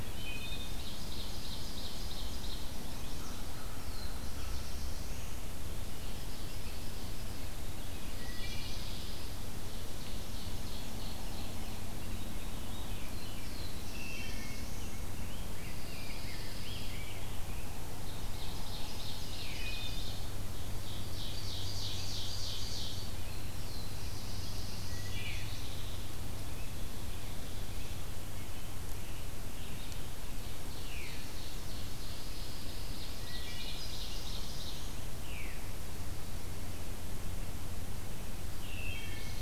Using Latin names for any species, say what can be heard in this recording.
Hylocichla mustelina, Seiurus aurocapilla, Setophaga pensylvanica, Corvus brachyrhynchos, Setophaga caerulescens, Setophaga pinus, Catharus fuscescens, Pheucticus ludovicianus